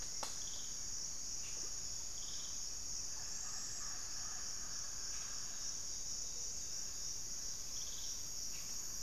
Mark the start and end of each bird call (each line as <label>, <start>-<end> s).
Hauxwell's Thrush (Turdus hauxwelli), 0.0-1.7 s
Mealy Parrot (Amazona farinosa), 0.0-9.0 s
Pygmy Antwren (Myrmotherula brachyura), 2.8-4.6 s
White-rumped Sirystes (Sirystes albocinereus), 7.4-9.0 s